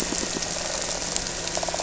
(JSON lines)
{"label": "anthrophony, boat engine", "recorder": "SoundTrap 300"}
{"label": "biophony", "recorder": "SoundTrap 300"}